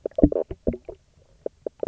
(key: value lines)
label: biophony, knock croak
recorder: SoundTrap 300